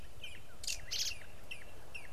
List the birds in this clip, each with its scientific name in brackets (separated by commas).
Red-backed Scrub-Robin (Cercotrichas leucophrys)